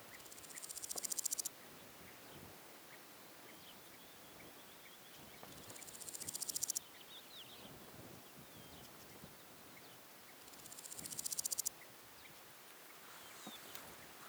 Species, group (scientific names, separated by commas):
Chorthippus apicalis, Orthoptera